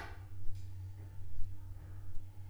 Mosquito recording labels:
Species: Anopheles arabiensis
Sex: female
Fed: unfed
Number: one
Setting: cup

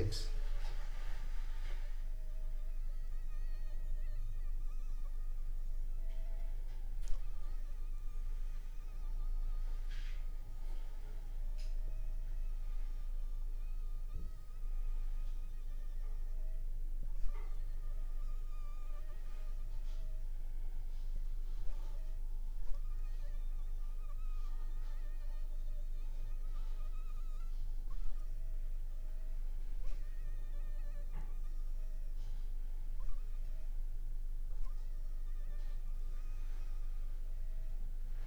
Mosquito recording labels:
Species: Anopheles funestus s.l.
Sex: female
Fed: unfed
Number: one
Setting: cup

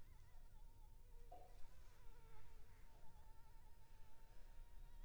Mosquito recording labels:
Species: Anopheles funestus s.s.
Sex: female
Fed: unfed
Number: one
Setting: cup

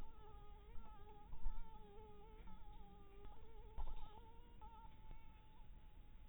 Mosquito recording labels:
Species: Anopheles harrisoni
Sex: female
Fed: blood-fed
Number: one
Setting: cup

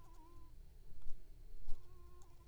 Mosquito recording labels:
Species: Culex pipiens complex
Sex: female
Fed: unfed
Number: one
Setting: cup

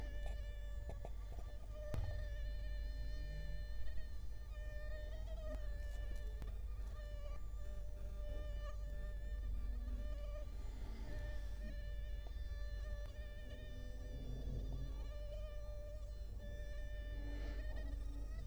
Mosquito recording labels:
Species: Culex quinquefasciatus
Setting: cup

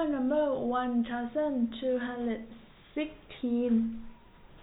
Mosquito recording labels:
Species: no mosquito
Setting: cup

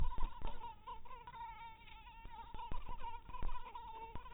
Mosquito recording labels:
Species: mosquito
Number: one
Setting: cup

